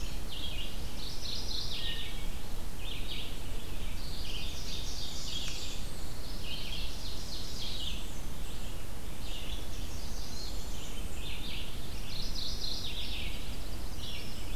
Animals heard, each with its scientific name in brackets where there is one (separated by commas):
Wood Thrush (Hylocichla mustelina), Red-eyed Vireo (Vireo olivaceus), Ovenbird (Seiurus aurocapilla), Mourning Warbler (Geothlypis philadelphia), Common Yellowthroat (Geothlypis trichas), Blackburnian Warbler (Setophaga fusca)